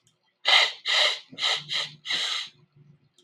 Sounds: Sniff